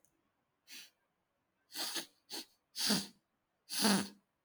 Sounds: Sniff